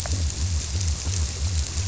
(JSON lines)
{"label": "biophony", "recorder": "SoundTrap 300"}